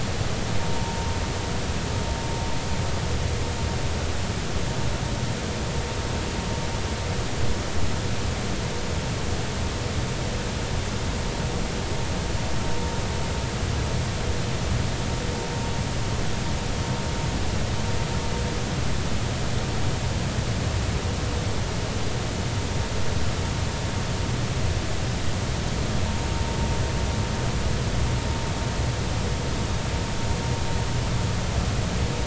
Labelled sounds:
0.7	1.1	vessel noise, 0.86 to 0.96 kHz

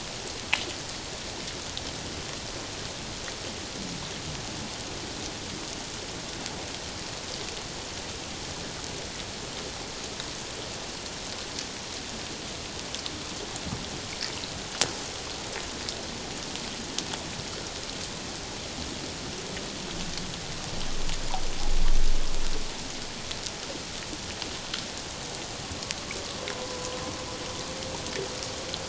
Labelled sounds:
26.5	27.0	humpback whale, 0.97 to 1.1 kHz

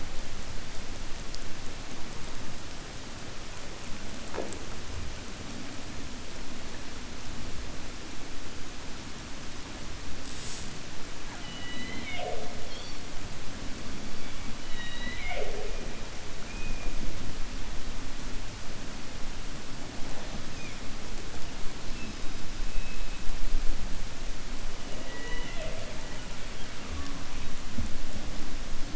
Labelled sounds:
14.6	15.8	killer whale, 0.38 to 4.0 kHz

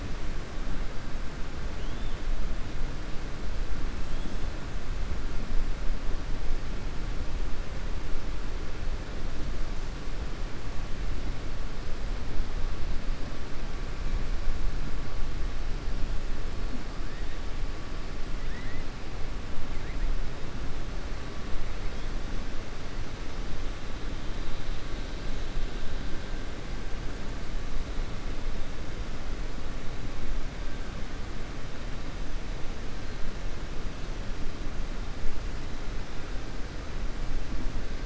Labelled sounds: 1.7	2.2	killer whale, 2.8 to 3.6 kHz

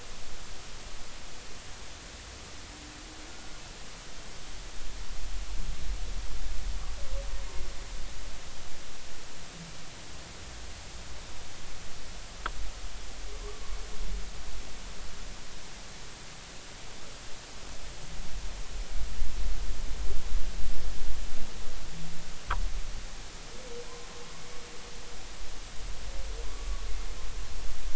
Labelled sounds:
13.4	13.8	humpback whale, 0.96 to 1.2 kHz
26.5	26.9	humpback whale, 1.1 to 1.3 kHz

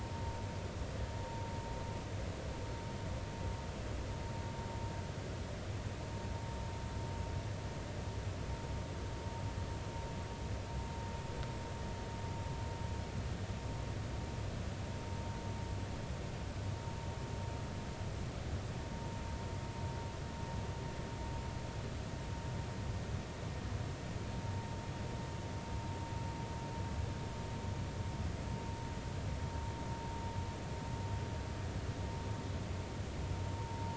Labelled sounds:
33.6	33.9	vessel noise, 0.86 to 1.1 kHz

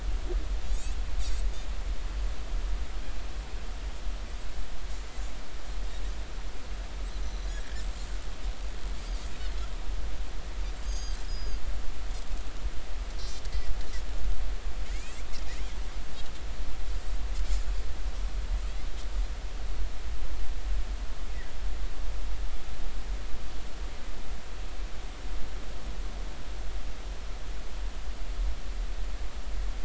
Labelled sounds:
0.7	0.9	Pacific white-sided dolphin, 6.7 to 7.9 kHz
7.2	7.5	Pacific white-sided dolphin, 5.8 to 6.1 kHz
10.8	11.6	Pacific white-sided dolphin, 3.1 to 8.0 kHz
13.5	13.7	Pacific white-sided dolphin, 1.9 to 2.1 kHz
14.9	15.2	Pacific white-sided dolphin, 1.9 to 7.7 kHz

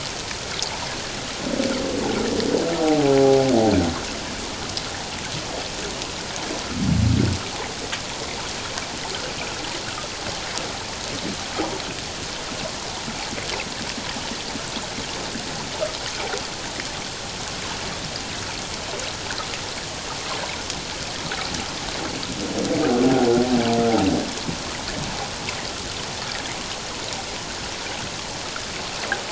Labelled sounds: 3.2	3.5	humpback whale, 0.78 to 0.84 kHz

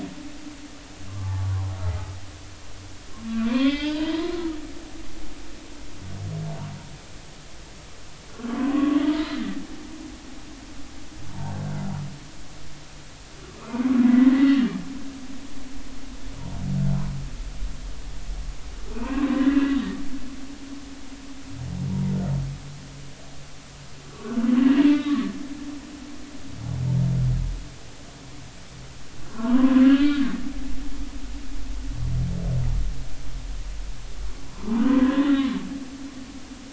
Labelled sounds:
1.1	2.1	humpback whale, 0.80 to 1.4 kHz
3.5	4.5	humpback whale, 0.83 to 5.2 kHz
8.5	9.0	humpback whale, 0.96 to 1.2 kHz
13.6	14.8	humpback whale, 1.0 to 3.0 kHz
18.9	19.8	humpback whale, 0.90 to 2.9 kHz
21.9	22.1	humpback whale, 0.83 to 0.99 kHz
24.1	25.4	humpback whale, 1.0 to 3.9 kHz
29.3	30.2	humpback whale, 0.86 to 3.3 kHz
34.5	35.6	humpback whale, 0.83 to 2.0 kHz

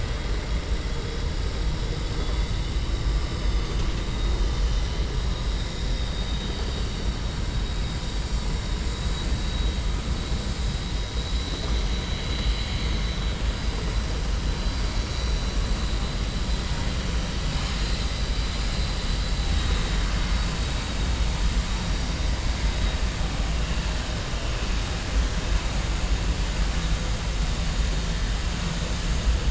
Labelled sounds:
1.9	2.7	vessel noise, 2.9 to 4.5 kHz
11.9	13.2	vessel noise, 2.0 to 4.7 kHz
17.4	18.1	vessel noise, 1.7 to 5.5 kHz
18.4	19.0	vessel noise, 3.4 to 5.0 kHz

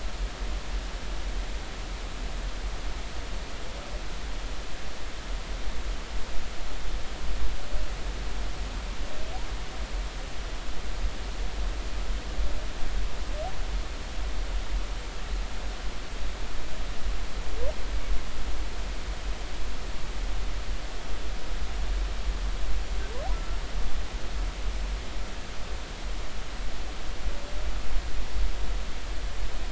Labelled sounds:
23.3	23.6	humpback whale, 1.3 to 1.4 kHz

